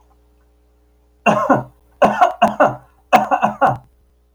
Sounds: Cough